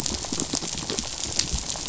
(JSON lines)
{"label": "biophony, rattle", "recorder": "SoundTrap 500"}